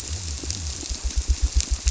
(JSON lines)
{"label": "biophony", "recorder": "SoundTrap 300"}